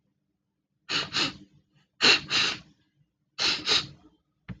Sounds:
Sniff